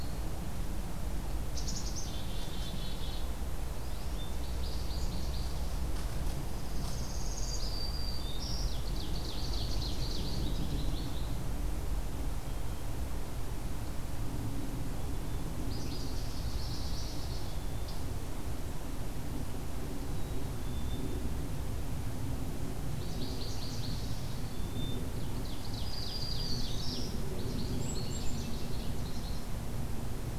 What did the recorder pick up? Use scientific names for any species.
Poecile atricapillus, Spinus tristis, Setophaga americana, Setophaga virens, Seiurus aurocapilla